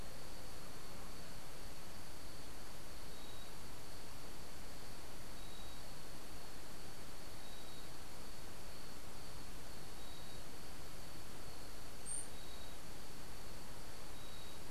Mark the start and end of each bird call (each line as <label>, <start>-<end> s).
unidentified bird, 12.0-12.3 s